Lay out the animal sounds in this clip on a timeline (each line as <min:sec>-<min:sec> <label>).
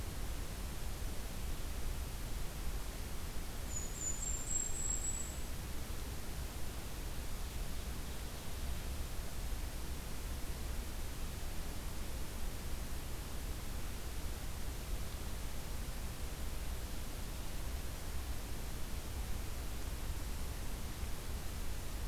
0:03.7-0:05.5 Golden-crowned Kinglet (Regulus satrapa)